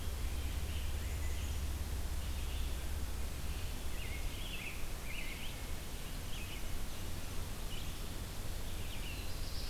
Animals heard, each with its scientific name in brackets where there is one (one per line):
American Robin (Turdus migratorius)
Black-capped Chickadee (Poecile atricapillus)
Black-throated Blue Warbler (Setophaga caerulescens)
Red-eyed Vireo (Vireo olivaceus)